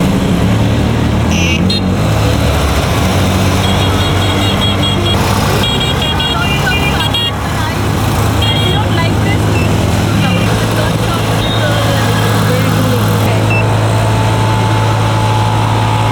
is there only one car present?
no